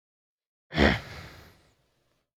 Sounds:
Throat clearing